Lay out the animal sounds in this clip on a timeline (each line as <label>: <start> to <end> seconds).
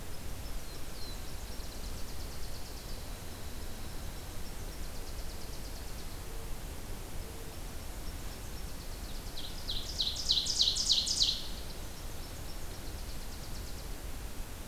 Nashville Warbler (Leiothlypis ruficapilla): 0.0 to 6.2 seconds
Black-throated Blue Warbler (Setophaga caerulescens): 0.4 to 1.9 seconds
Pine Warbler (Setophaga pinus): 2.5 to 4.0 seconds
Nashville Warbler (Leiothlypis ruficapilla): 7.4 to 9.0 seconds
Ovenbird (Seiurus aurocapilla): 9.1 to 11.4 seconds
Nashville Warbler (Leiothlypis ruficapilla): 11.5 to 14.0 seconds